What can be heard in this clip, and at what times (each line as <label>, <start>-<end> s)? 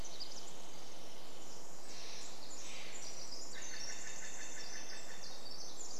unidentified sound, 0-2 s
Steller's Jay call, 0-4 s
Pacific Wren song, 0-6 s